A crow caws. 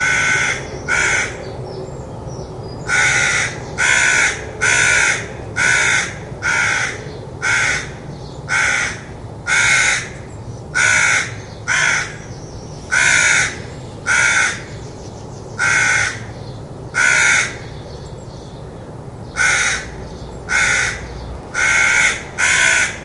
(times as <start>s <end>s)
0.0s 1.3s, 2.8s 7.9s, 8.5s 10.1s, 10.7s 12.1s, 12.9s 14.6s, 15.5s 16.2s, 16.9s 17.5s, 19.4s 19.9s, 20.5s 21.0s, 21.6s 23.0s